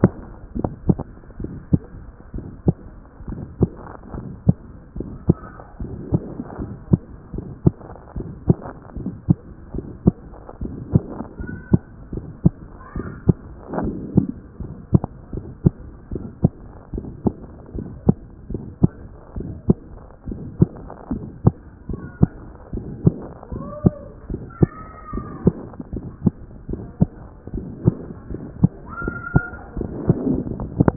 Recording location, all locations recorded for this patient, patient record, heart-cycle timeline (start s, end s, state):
pulmonary valve (PV)
aortic valve (AV)+aortic valve (AV)+pulmonary valve (PV)+pulmonary valve (PV)+tricuspid valve (TV)+mitral valve (MV)
#Age: Adolescent
#Sex: Female
#Height: 142.0 cm
#Weight: 26.5 kg
#Pregnancy status: False
#Murmur: Present
#Murmur locations: aortic valve (AV)+pulmonary valve (PV)+tricuspid valve (TV)
#Most audible location: tricuspid valve (TV)
#Systolic murmur timing: Holosystolic
#Systolic murmur shape: Decrescendo
#Systolic murmur grading: I/VI
#Systolic murmur pitch: Medium
#Systolic murmur quality: Harsh
#Diastolic murmur timing: nan
#Diastolic murmur shape: nan
#Diastolic murmur grading: nan
#Diastolic murmur pitch: nan
#Diastolic murmur quality: nan
#Outcome: Abnormal
#Campaign: 2014 screening campaign
0.00	0.58	unannotated
0.58	0.70	S1
0.70	0.88	systole
0.88	0.98	S2
0.98	1.42	diastole
1.42	1.52	S1
1.52	1.72	systole
1.72	1.82	S2
1.82	2.34	diastole
2.34	2.46	S1
2.46	2.66	systole
2.66	2.76	S2
2.76	3.30	diastole
3.30	3.42	S1
3.42	3.60	systole
3.60	3.70	S2
3.70	4.16	diastole
4.16	4.26	S1
4.26	4.46	systole
4.46	4.56	S2
4.56	4.98	diastole
4.98	5.08	S1
5.08	5.28	systole
5.28	5.36	S2
5.36	5.82	diastole
5.82	5.94	S1
5.94	6.12	systole
6.12	6.22	S2
6.22	6.60	diastole
6.60	6.72	S1
6.72	6.90	systole
6.90	7.00	S2
7.00	7.34	diastole
7.34	7.46	S1
7.46	7.64	systole
7.64	7.74	S2
7.74	8.16	diastole
8.16	8.28	S1
8.28	8.48	systole
8.48	8.58	S2
8.58	9.00	diastole
9.00	9.12	S1
9.12	9.28	systole
9.28	9.38	S2
9.38	9.74	diastole
9.74	9.86	S1
9.86	10.04	systole
10.04	10.14	S2
10.14	10.62	diastole
10.62	10.74	S1
10.74	10.92	systole
10.92	11.04	S2
11.04	11.42	diastole
11.42	11.54	S1
11.54	11.72	systole
11.72	11.80	S2
11.80	12.14	diastole
12.14	12.24	S1
12.24	12.44	systole
12.44	12.54	S2
12.54	12.96	diastole
12.96	13.08	S1
13.08	13.26	systole
13.26	13.36	S2
13.36	13.78	diastole
13.78	13.94	S1
13.94	14.14	systole
14.14	14.30	S2
14.30	14.62	diastole
14.62	14.74	S1
14.74	14.92	systole
14.92	15.02	S2
15.02	15.34	diastole
15.34	15.44	S1
15.44	15.64	systole
15.64	15.74	S2
15.74	16.12	diastole
16.12	16.24	S1
16.24	16.42	systole
16.42	16.52	S2
16.52	16.94	diastole
16.94	17.06	S1
17.06	17.24	systole
17.24	17.34	S2
17.34	17.76	diastole
17.76	17.88	S1
17.88	18.06	systole
18.06	18.16	S2
18.16	18.52	diastole
18.52	18.62	S1
18.62	18.82	systole
18.82	18.92	S2
18.92	19.38	diastole
19.38	19.50	S1
19.50	19.68	systole
19.68	19.78	S2
19.78	20.28	diastole
20.28	20.40	S1
20.40	20.60	systole
20.60	20.70	S2
20.70	21.12	diastole
21.12	21.24	S1
21.24	21.44	systole
21.44	21.54	S2
21.54	21.90	diastole
21.90	22.00	S1
22.00	22.20	systole
22.20	22.30	S2
22.30	22.74	diastole
22.74	22.86	S1
22.86	23.04	systole
23.04	23.14	S2
23.14	23.54	diastole
23.54	23.66	S1
23.66	23.84	systole
23.84	23.94	S2
23.94	24.30	diastole
24.30	24.42	S1
24.42	24.60	systole
24.60	24.70	S2
24.70	25.14	diastole
25.14	25.26	S1
25.26	25.44	systole
25.44	25.54	S2
25.54	25.94	diastole
25.94	26.06	S1
26.06	26.24	systole
26.24	26.34	S2
26.34	26.70	diastole
26.70	26.82	S1
26.82	27.00	systole
27.00	27.10	S2
27.10	27.54	diastole
27.54	27.66	S1
27.66	27.84	systole
27.84	27.96	S2
27.96	28.32	diastole
28.32	28.42	S1
28.42	28.60	systole
28.60	28.70	S2
28.70	29.04	diastole
29.04	29.16	S1
29.16	29.34	systole
29.34	29.44	S2
29.44	29.78	diastole
29.78	30.96	unannotated